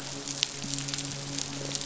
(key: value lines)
label: biophony, midshipman
recorder: SoundTrap 500

label: biophony
recorder: SoundTrap 500